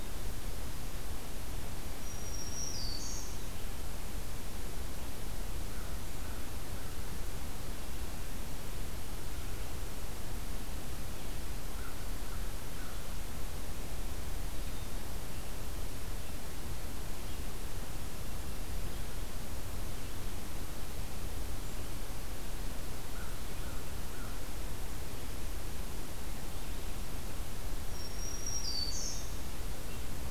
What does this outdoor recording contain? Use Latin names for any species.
Setophaga virens, Corvus brachyrhynchos